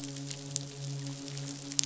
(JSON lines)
{"label": "biophony, midshipman", "recorder": "SoundTrap 500"}